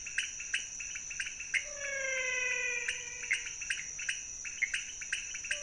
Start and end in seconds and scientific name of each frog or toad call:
0.0	5.6	Leptodactylus podicipinus
1.3	3.9	Physalaemus albonotatus
3.3	3.4	Pithecopus azureus
4.6	4.7	Pithecopus azureus